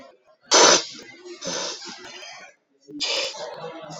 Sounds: Sniff